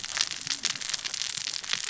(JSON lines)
{"label": "biophony, cascading saw", "recorder": "SoundTrap 600 or HydroMoth"}